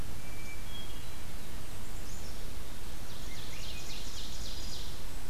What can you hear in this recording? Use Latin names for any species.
Catharus guttatus, Poecile atricapillus, Seiurus aurocapilla, Catharus ustulatus